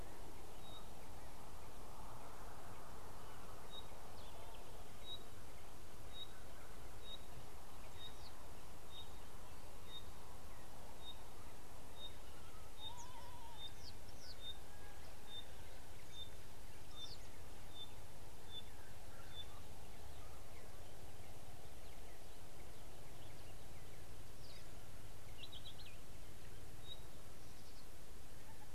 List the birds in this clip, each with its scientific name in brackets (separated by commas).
Red-backed Scrub-Robin (Cercotrichas leucophrys), Pygmy Batis (Batis perkeo), Red-fronted Prinia (Prinia rufifrons)